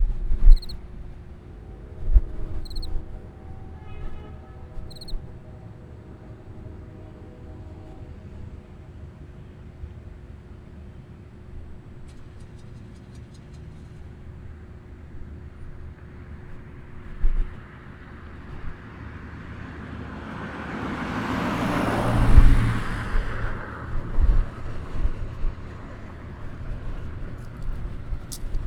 Is a vehicle involved?
yes